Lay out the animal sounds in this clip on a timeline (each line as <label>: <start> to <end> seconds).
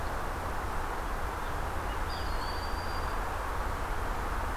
Scarlet Tanager (Piranga olivacea): 0.6 to 2.8 seconds
Broad-winged Hawk (Buteo platypterus): 1.9 to 3.6 seconds